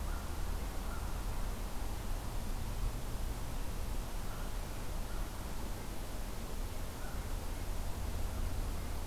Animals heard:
forest ambience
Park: Marsh-Billings-Rockefeller National Historical Park